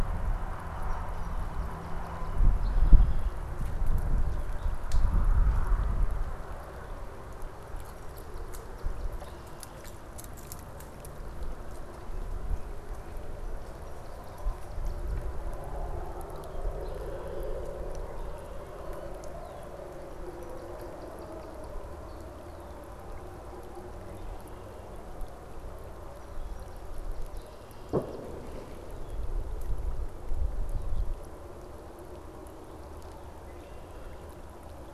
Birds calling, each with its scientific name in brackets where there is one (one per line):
Northern Cardinal (Cardinalis cardinalis)
Song Sparrow (Melospiza melodia)
Red-winged Blackbird (Agelaius phoeniceus)